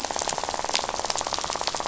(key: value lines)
label: biophony, rattle
recorder: SoundTrap 500